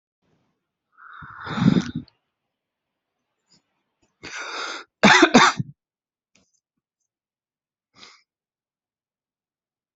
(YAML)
expert_labels:
- quality: good
  cough_type: dry
  dyspnea: false
  wheezing: false
  stridor: false
  choking: false
  congestion: false
  nothing: true
  diagnosis: healthy cough
  severity: pseudocough/healthy cough
age: 32
gender: male
respiratory_condition: false
fever_muscle_pain: false
status: symptomatic